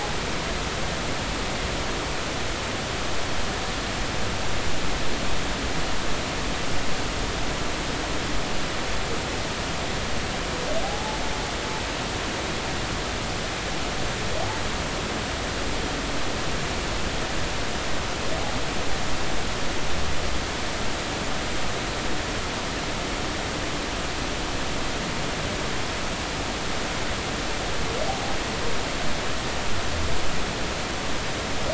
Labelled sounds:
10.8	11.2	humpback whale, 0.80 to 0.93 kHz

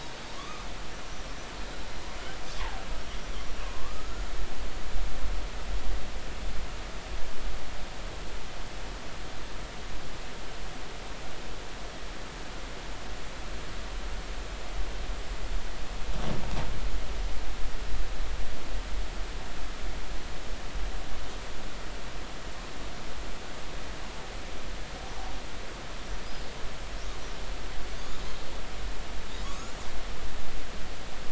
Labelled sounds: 0.4	0.7	killer whale, northern resident, 1.0 to 1.3 kHz
3.6	4.2	killer whale, northern resident, 0.93 to 1.5 kHz
29.4	29.7	killer whale, northern resident, 0.99 to 1.4 kHz

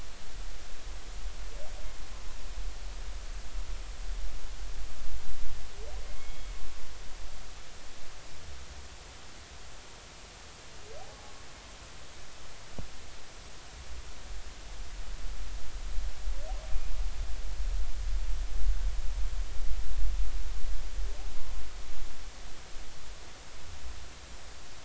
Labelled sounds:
6.2	6.5	humpback whale, 2.1 to 3.4 kHz

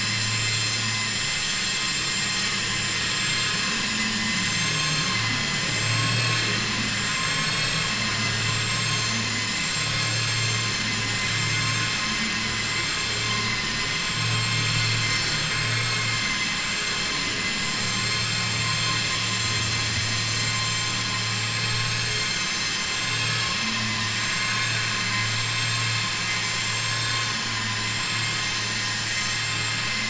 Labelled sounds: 3.9	4.4	vessel noise, 0.87 to 3.0 kHz
13.3	13.9	vessel noise, 1.1 to 3.0 kHz

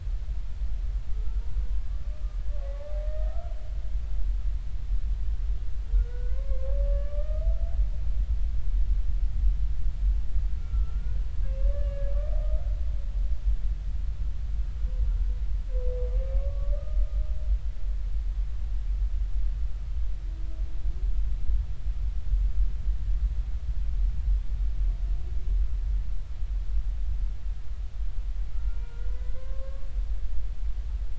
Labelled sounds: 2.1	2.4	humpback whale, 1.2 to 1.3 kHz
2.7	3.5	humpback whale, 1.2 to 2.1 kHz
5.9	7.4	humpback whale, 0.99 to 2.3 kHz
10.6	12.1	humpback whale, 1.1 to 2.8 kHz
16.3	17.0	humpback whale, 1.1 to 1.3 kHz
28.5	29.9	humpback whale, 0.93 to 2.1 kHz

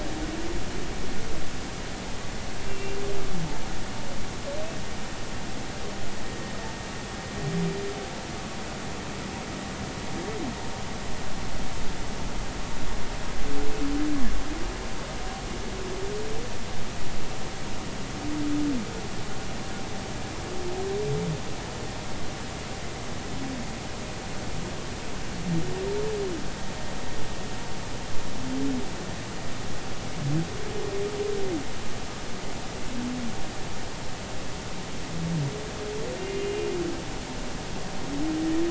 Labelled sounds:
2.6	3.0	humpback whale, 2.3 to 2.8 kHz
37.2	37.7	humpback whale, 2.7 to 2.9 kHz

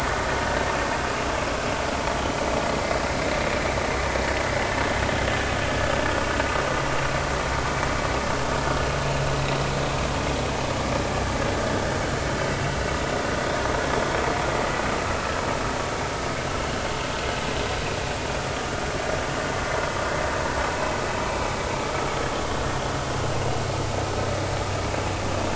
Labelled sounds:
21.2	21.5	vessel noise, 2.2 to 2.5 kHz

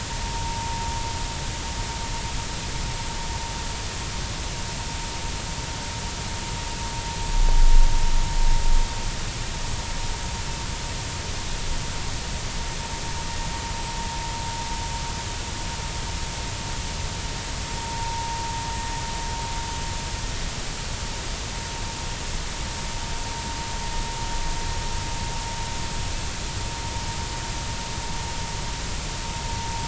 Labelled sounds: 0.4	0.7	vessel noise, 0.86 to 0.96 kHz
17.8	18.3	vessel noise, 0.86 to 1.0 kHz

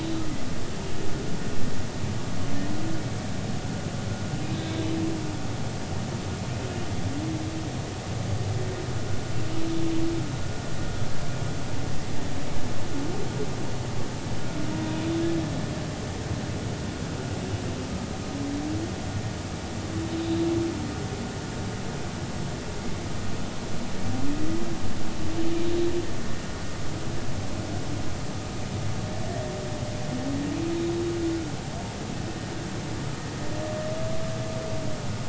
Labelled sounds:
4.5	4.8	humpback whale, 3.5 to 3.9 kHz

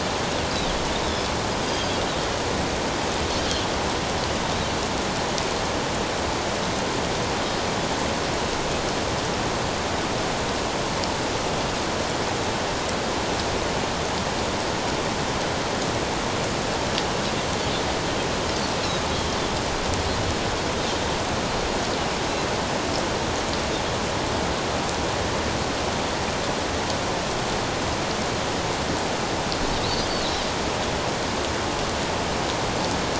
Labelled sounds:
1.6	1.9	Pacific white-sided dolphin, 4.7 to 4.9 kHz

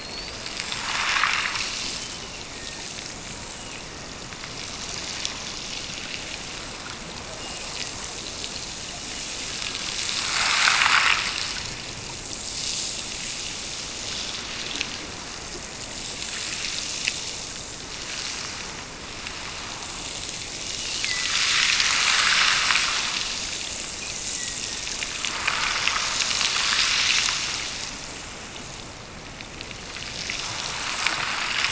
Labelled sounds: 1.8	2.9	killer whale, Bigg's (transient), Gulf of Alaska transient, 1.7 to 3.1 kHz
3.5	4.3	killer whale, Bigg's (transient), Gulf of Alaska transient, 1.7 to 3.0 kHz
7.2	8.2	killer whale, Bigg's (transient), Gulf of Alaska transient, 1.6 to 2.9 kHz
20.6	21.4	killer whale, Bigg's (transient), Gulf of Alaska transient, 1.8 to 2.9 kHz
23.8	25.1	killer whale, Bigg's (transient), Gulf of Alaska transient, 1.7 to 2.8 kHz

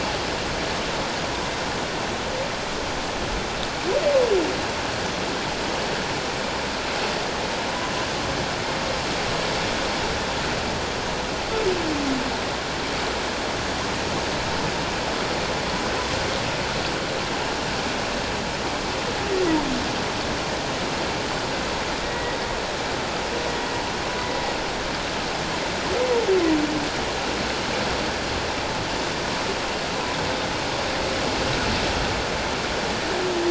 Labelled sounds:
22.0	22.4	humpback whale, 1.8 to 2.0 kHz

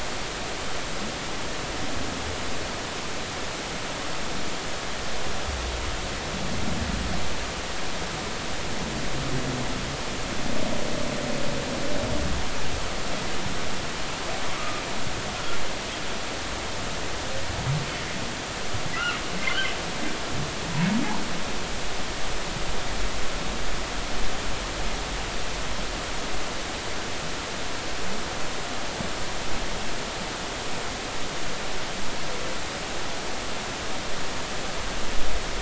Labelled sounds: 14.5	14.8	humpback whale, 1.1 to 1.3 kHz

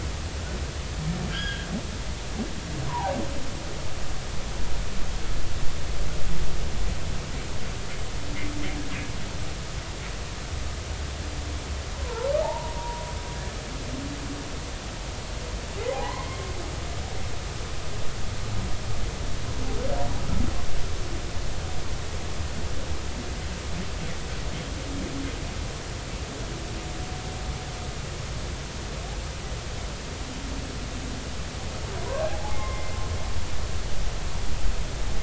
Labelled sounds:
1.3	1.7	humpback whale, 1.5 to 3.4 kHz
2.9	3.2	humpback whale, 0.80 to 1.1 kHz
12.0	13.1	humpback whale, 0.80 to 1.1 kHz
15.9	16.3	humpback whale, 0.80 to 1.1 kHz
32.2	33.0	humpback whale, 0.80 to 2.2 kHz

